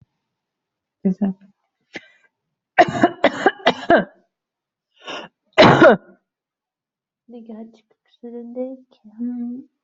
{"expert_labels": [{"quality": "good", "cough_type": "wet", "dyspnea": false, "wheezing": false, "stridor": false, "choking": false, "congestion": false, "nothing": true, "diagnosis": "lower respiratory tract infection", "severity": "mild"}], "age": 49, "gender": "female", "respiratory_condition": false, "fever_muscle_pain": false, "status": "symptomatic"}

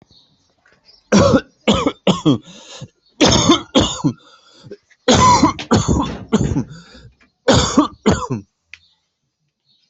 {"expert_labels": [{"quality": "good", "cough_type": "wet", "dyspnea": false, "wheezing": false, "stridor": false, "choking": false, "congestion": false, "nothing": true, "diagnosis": "lower respiratory tract infection", "severity": "mild"}], "age": 47, "gender": "male", "respiratory_condition": false, "fever_muscle_pain": false, "status": "healthy"}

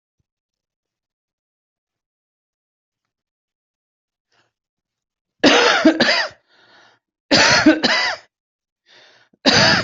{"expert_labels": [{"quality": "good", "cough_type": "dry", "dyspnea": false, "wheezing": true, "stridor": false, "choking": false, "congestion": false, "nothing": false, "diagnosis": "obstructive lung disease", "severity": "mild"}], "age": 45, "gender": "female", "respiratory_condition": false, "fever_muscle_pain": true, "status": "symptomatic"}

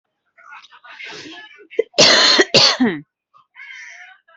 {"expert_labels": [{"quality": "good", "cough_type": "wet", "dyspnea": false, "wheezing": false, "stridor": false, "choking": false, "congestion": false, "nothing": true, "diagnosis": "healthy cough", "severity": "pseudocough/healthy cough"}], "age": 33, "gender": "other", "respiratory_condition": true, "fever_muscle_pain": true, "status": "COVID-19"}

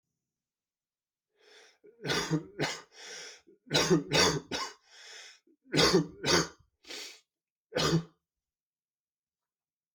{"expert_labels": [{"quality": "good", "cough_type": "dry", "dyspnea": false, "wheezing": false, "stridor": false, "choking": false, "congestion": true, "nothing": false, "diagnosis": "upper respiratory tract infection", "severity": "mild"}], "age": 52, "gender": "male", "respiratory_condition": true, "fever_muscle_pain": true, "status": "symptomatic"}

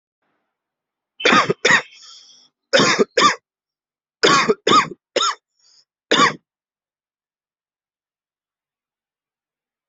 {"expert_labels": [{"quality": "ok", "cough_type": "dry", "dyspnea": false, "wheezing": false, "stridor": false, "choking": false, "congestion": false, "nothing": true, "diagnosis": "COVID-19", "severity": "severe"}, {"quality": "good", "cough_type": "dry", "dyspnea": false, "wheezing": false, "stridor": false, "choking": false, "congestion": false, "nothing": true, "diagnosis": "upper respiratory tract infection", "severity": "unknown"}, {"quality": "good", "cough_type": "wet", "dyspnea": false, "wheezing": false, "stridor": false, "choking": false, "congestion": false, "nothing": true, "diagnosis": "upper respiratory tract infection", "severity": "mild"}, {"quality": "good", "cough_type": "dry", "dyspnea": false, "wheezing": false, "stridor": false, "choking": false, "congestion": false, "nothing": true, "diagnosis": "COVID-19", "severity": "severe"}], "age": 22, "gender": "male", "respiratory_condition": false, "fever_muscle_pain": false, "status": "symptomatic"}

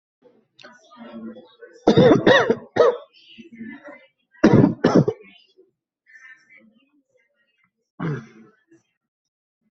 {"expert_labels": [{"quality": "ok", "cough_type": "dry", "dyspnea": false, "wheezing": false, "stridor": false, "choking": false, "congestion": false, "nothing": true, "diagnosis": "COVID-19", "severity": "mild"}]}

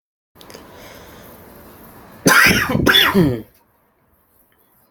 {"expert_labels": [{"quality": "good", "cough_type": "unknown", "dyspnea": false, "wheezing": false, "stridor": false, "choking": false, "congestion": false, "nothing": true, "diagnosis": "healthy cough", "severity": "pseudocough/healthy cough"}]}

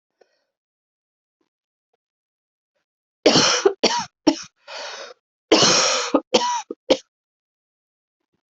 {"expert_labels": [{"quality": "ok", "cough_type": "dry", "dyspnea": false, "wheezing": true, "stridor": false, "choking": false, "congestion": false, "nothing": false, "diagnosis": "COVID-19", "severity": "mild"}], "age": 63, "gender": "female", "respiratory_condition": true, "fever_muscle_pain": false, "status": "symptomatic"}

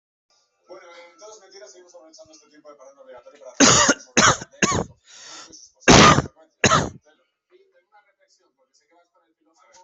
{"expert_labels": [{"quality": "ok", "cough_type": "dry", "dyspnea": false, "wheezing": false, "stridor": false, "choking": false, "congestion": false, "nothing": true, "diagnosis": "lower respiratory tract infection", "severity": "mild"}], "age": 27, "gender": "male", "respiratory_condition": false, "fever_muscle_pain": false, "status": "healthy"}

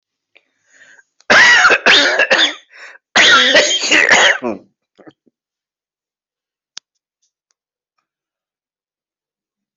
{"expert_labels": [{"quality": "good", "cough_type": "wet", "dyspnea": false, "wheezing": false, "stridor": true, "choking": false, "congestion": false, "nothing": false, "diagnosis": "COVID-19", "severity": "mild"}], "age": 47, "gender": "male", "respiratory_condition": true, "fever_muscle_pain": false, "status": "COVID-19"}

